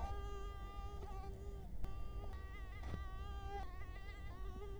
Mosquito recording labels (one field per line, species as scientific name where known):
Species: Culex quinquefasciatus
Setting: cup